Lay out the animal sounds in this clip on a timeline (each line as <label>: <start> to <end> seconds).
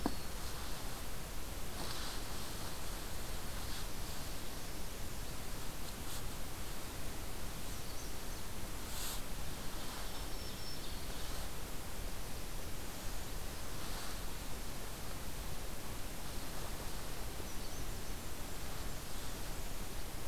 Canada Warbler (Cardellina canadensis): 7.4 to 8.5 seconds
Black-throated Green Warbler (Setophaga virens): 9.8 to 11.5 seconds
Canada Warbler (Cardellina canadensis): 17.2 to 18.6 seconds